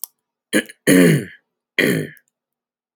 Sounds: Throat clearing